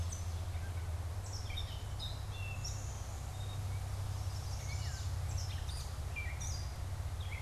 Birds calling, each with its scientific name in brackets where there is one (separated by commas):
Gray Catbird (Dumetella carolinensis), Chestnut-sided Warbler (Setophaga pensylvanica)